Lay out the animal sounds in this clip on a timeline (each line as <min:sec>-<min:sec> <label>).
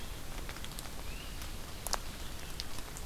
0:00.9-0:01.4 Great Crested Flycatcher (Myiarchus crinitus)